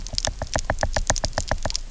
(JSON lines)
{"label": "biophony, knock", "recorder": "SoundTrap 300"}